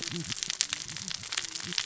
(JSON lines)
{"label": "biophony, cascading saw", "recorder": "SoundTrap 600 or HydroMoth"}